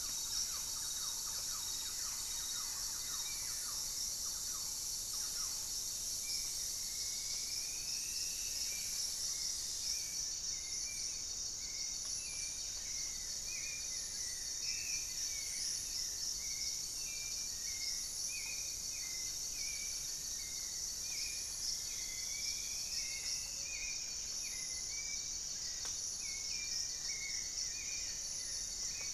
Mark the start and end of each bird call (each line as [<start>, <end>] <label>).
[0.00, 5.77] Thrush-like Wren (Campylorhynchus turdinus)
[0.00, 14.57] Gray-fronted Dove (Leptotila rufaxilla)
[0.00, 17.87] Paradise Tanager (Tangara chilensis)
[0.00, 29.13] Buff-breasted Wren (Cantorchilus leucotis)
[0.00, 29.13] Hauxwell's Thrush (Turdus hauxwelli)
[1.27, 3.87] Goeldi's Antbird (Akletos goeldii)
[6.27, 8.87] Striped Woodcreeper (Xiphorhynchus obsoletus)
[7.77, 10.57] Black-faced Antthrush (Formicarius analis)
[13.57, 16.37] Goeldi's Antbird (Akletos goeldii)
[21.77, 23.87] Striped Woodcreeper (Xiphorhynchus obsoletus)
[23.47, 29.13] Gray-fronted Dove (Leptotila rufaxilla)
[26.57, 29.13] Goeldi's Antbird (Akletos goeldii)